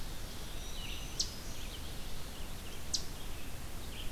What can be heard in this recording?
Eastern Chipmunk, Red-eyed Vireo, Eastern Wood-Pewee, Black-throated Green Warbler